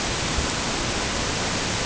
{"label": "ambient", "recorder": "HydroMoth"}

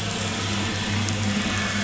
{"label": "anthrophony, boat engine", "recorder": "SoundTrap 500"}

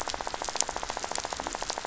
{"label": "biophony, rattle", "recorder": "SoundTrap 500"}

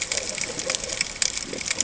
{"label": "ambient", "recorder": "HydroMoth"}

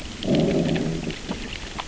{"label": "biophony, growl", "recorder": "SoundTrap 600 or HydroMoth"}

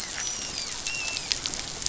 {"label": "biophony, dolphin", "recorder": "SoundTrap 500"}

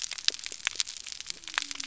{"label": "biophony", "recorder": "SoundTrap 300"}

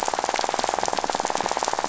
{"label": "biophony, rattle", "recorder": "SoundTrap 500"}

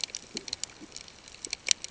{"label": "ambient", "recorder": "HydroMoth"}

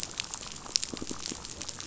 {"label": "biophony", "recorder": "SoundTrap 500"}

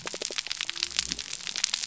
{"label": "biophony", "recorder": "SoundTrap 300"}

